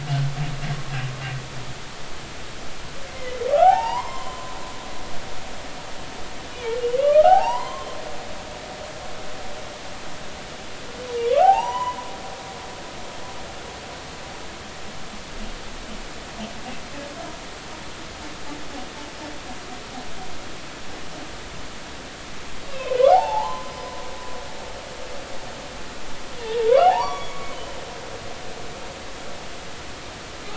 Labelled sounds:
3.1	4.5	humpback whale, 0.80 to 7.5 kHz
6.5	7.9	humpback whale, 0.80 to 5.0 kHz
11.3	12.0	humpback whale, 0.80 to 3.1 kHz
22.7	23.7	humpback whale, 0.80 to 3.9 kHz
26.4	27.8	humpback whale, 0.80 to 3.5 kHz

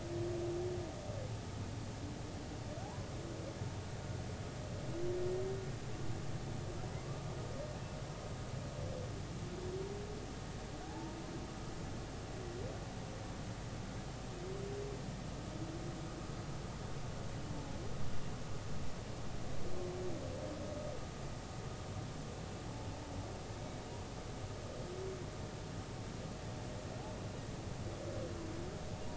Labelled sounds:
2.8	3.1	humpback whale, 0.80 to 1.1 kHz
10.8	11.1	humpback whale, 0.80 to 0.96 kHz

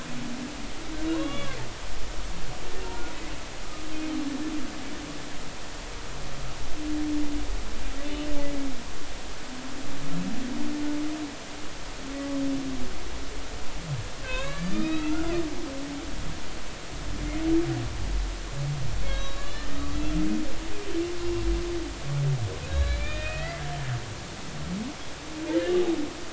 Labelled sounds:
1.1	1.6	humpback whale, 0.93 to 3.5 kHz
12.2	12.4	humpback whale, 0.99 to 1.2 kHz
14.2	15.3	humpback whale, 0.96 to 4.0 kHz
19.0	20.0	humpback whale, 1.1 to 4.0 kHz
22.7	23.6	humpback whale, 1.6 to 4.1 kHz

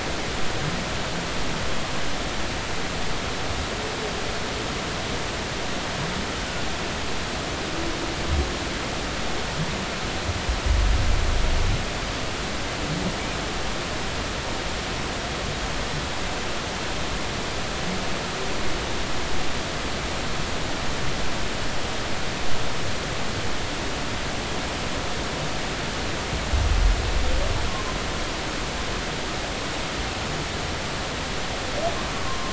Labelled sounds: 32.1	32.5	humpback whale, 0.99 to 1.2 kHz

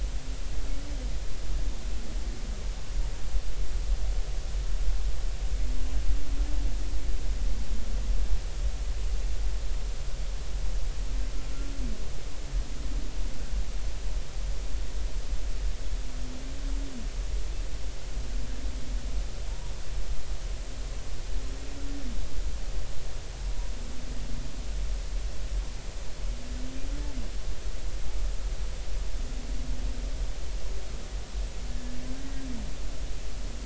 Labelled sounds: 31.7	32.0	humpback whale, 1.7 to 1.9 kHz

